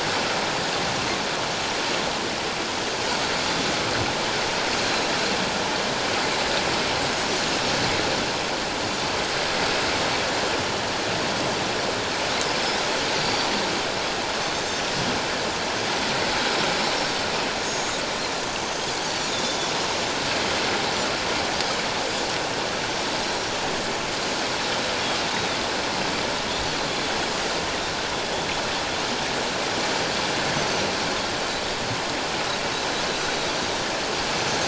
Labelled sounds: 13.2	13.5	Pacific white-sided dolphin, 4.5 to 4.8 kHz
18.6	19.6	Pacific white-sided dolphin, 3.4 to 6.4 kHz
25.3	25.6	Pacific white-sided dolphin, 3.4 to 3.9 kHz

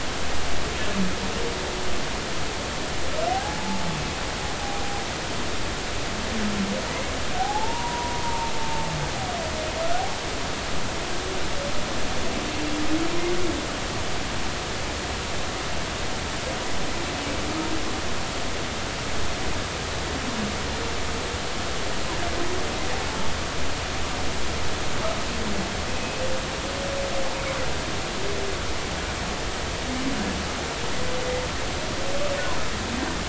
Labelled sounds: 3.3	3.8	humpback whale, 0.80 to 0.96 kHz
4.6	5.0	humpback whale, 0.80 to 0.83 kHz
7.4	8.9	humpback whale, 0.80 to 1.0 kHz
25.9	26.2	humpback whale, 2.5 to 2.6 kHz

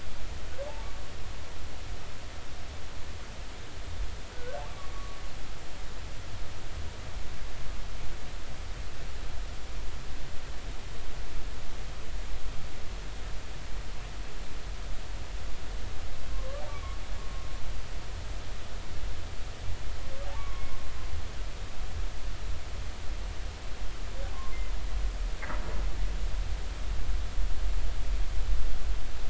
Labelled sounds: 4.3	5.2	humpback whale, 1.1 to 1.6 kHz
16.3	16.6	humpback whale, 1.0 to 1.2 kHz
20.4	20.7	humpback whale, 1.0 to 1.2 kHz

